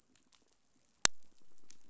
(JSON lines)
{"label": "biophony, pulse", "recorder": "SoundTrap 500"}